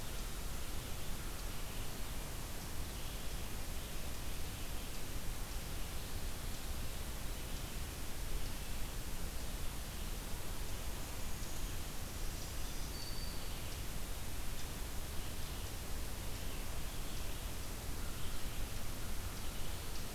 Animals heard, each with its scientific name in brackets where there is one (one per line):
Black-throated Green Warbler (Setophaga virens)
Eastern Chipmunk (Tamias striatus)